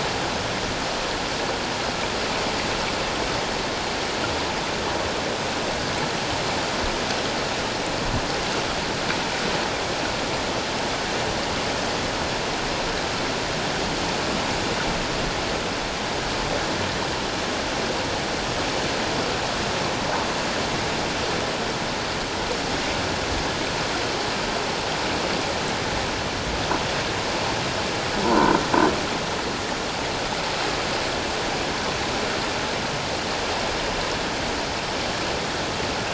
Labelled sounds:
28.2	28.6	croaking sound likely from a nearby submerged object, 0.88 to 1.1 kHz

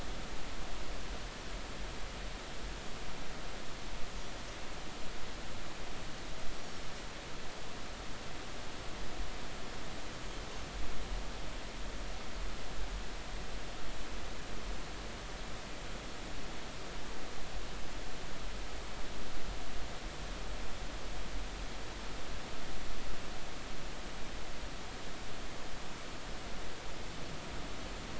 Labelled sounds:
6.6	6.8	Pacific white-sided dolphin, 5.4 to 5.8 kHz
10.2	10.4	Pacific white-sided dolphin, 6.2 to 6.8 kHz

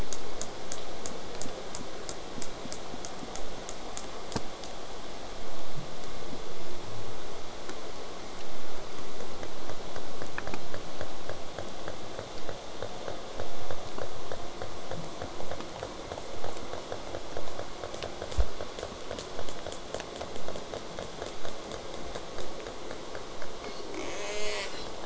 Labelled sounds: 24.0	24.7	killer whale, southern resident, J pod, buzz, 0.35 to 8.0 kHz

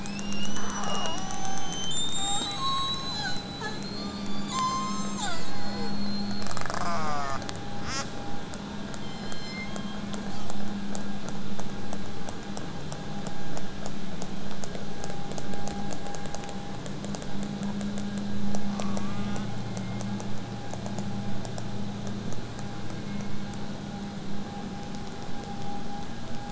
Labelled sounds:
0.0	4.6	killer whale, southern resident, 0.44 to 8.0 kHz
2.6	6.3	killer whale, southern resident, J pod, call S07, 0.49 to 8.0 kHz
6.4	7.5	killer whale, southern resident, J pod, call S04, 0 to 8.0 kHz
7.8	8.1	killer whale, southern resident, J pod, call S05, 0.28 to 8.0 kHz
9.0	10.7	killer whale, southern resident, J pod, call S03, 1.9 to 8.0 kHz
18.8	19.5	killer whale, southern resident, J pod, call S04, 0.65 to 4.3 kHz
19.6	20.8	killer whale, southern resident, J pod, call S01, 0.81 to 2.5 kHz
22.7	23.8	killer whale, southern resident, J pod, call S01, 0.73 to 2.4 kHz

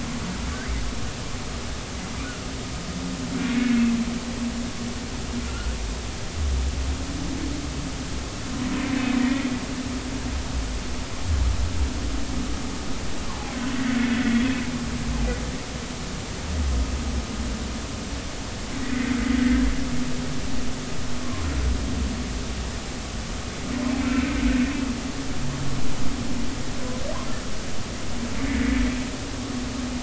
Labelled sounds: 3.5	3.8	humpback whale, 2.1 to 2.3 kHz
5.5	5.8	humpback whale, 1.3 to 1.5 kHz
9.2	9.5	humpback whale, 1.9 to 2.0 kHz
14.0	14.5	humpback whale, 1.7 to 2.0 kHz
18.8	19.2	humpback whale, 1.8 to 2.2 kHz
21.2	21.5	humpback whale, 0.99 to 1.2 kHz

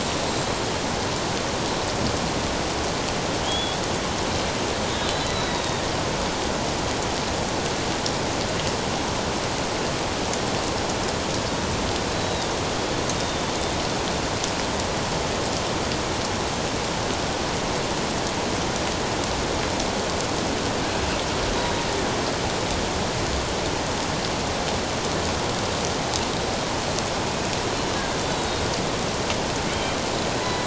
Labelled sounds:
3.4	3.8	killer whale, Bigg's (transient), 3.0 to 3.5 kHz
4.9	5.8	killer whale, Bigg's (transient), 3.4 to 4.0 kHz
12.1	12.5	killer whale, Bigg's (transient), 3.5 to 4.1 kHz
13.2	13.4	killer whale, Bigg's (transient), 3.5 to 3.7 kHz
28.3	28.7	killer whale, Bigg's (transient), 3.7 to 4.0 kHz
30.4	30.6	killer whale, Bigg's (transient), 1.9 to 2.0 kHz

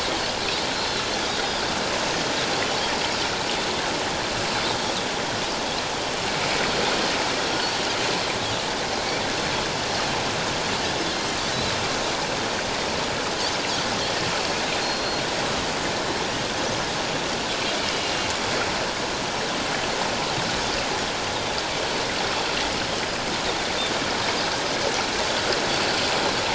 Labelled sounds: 14.8	15.2	Pacific white-sided dolphin, 4.2 to 4.4 kHz

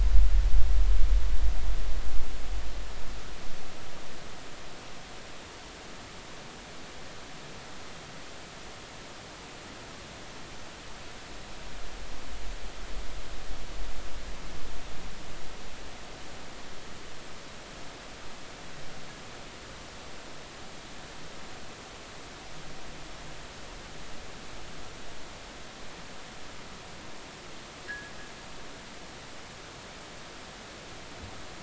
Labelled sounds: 27.8	28.1	fishing gear, 1.5 to 2.0 kHz

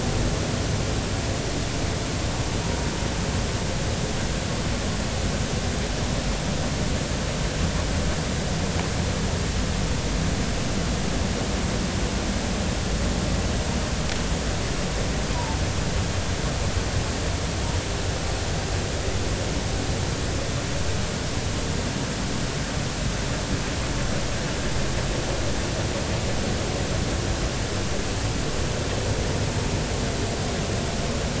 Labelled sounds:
15.3	15.6	humpback whale, 0.83 to 1.1 kHz

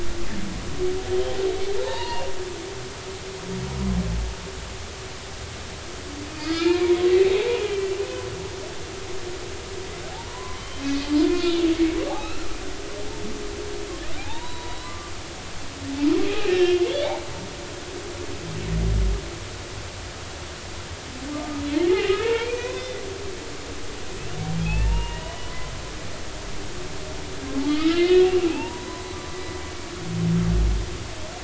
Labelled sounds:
1.8	2.3	humpback whale, 0.83 to 2.9 kHz
6.4	7.7	humpback whale, 0.80 to 5.1 kHz
10.1	11.6	humpback whale, 0.80 to 3.9 kHz
12.1	12.5	humpback whale, 1.1 to 3.9 kHz
14.2	15.1	humpback whale, 0.80 to 4.1 kHz
16.3	16.8	humpback whale, 1.7 to 5.4 kHz
21.3	21.6	humpback whale, 1.1 to 1.3 kHz
21.9	23.0	humpback whale, 0.86 to 3.7 kHz
24.6	25.5	humpback whale, 0.80 to 3.0 kHz
27.7	29.6	humpback whale, 0.80 to 4.1 kHz

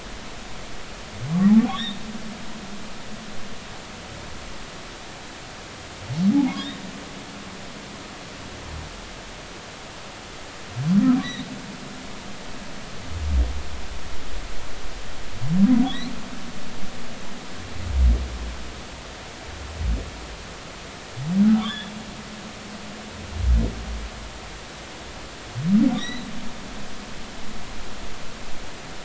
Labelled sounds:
1.7	2.0	humpback whale, 3.2 to 3.9 kHz
6.3	6.8	humpback whale, 0.80 to 3.9 kHz
15.8	16.1	humpback whale, 3.1 to 4.4 kHz
21.4	21.9	humpback whale, 1.1 to 3.7 kHz
25.9	26.3	humpback whale, 3.3 to 4.1 kHz

